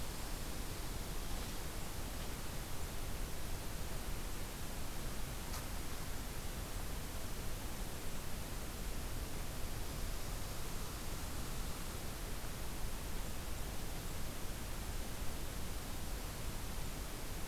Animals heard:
forest ambience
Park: Katahdin Woods and Waters National Monument